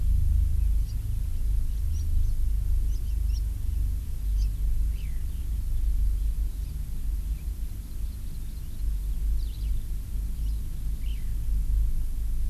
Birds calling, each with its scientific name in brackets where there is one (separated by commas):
Hawaii Amakihi (Chlorodrepanis virens), Eurasian Skylark (Alauda arvensis)